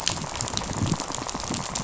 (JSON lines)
{"label": "biophony, rattle", "recorder": "SoundTrap 500"}